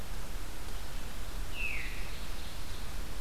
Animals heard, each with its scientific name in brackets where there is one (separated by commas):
Ovenbird (Seiurus aurocapilla), Veery (Catharus fuscescens)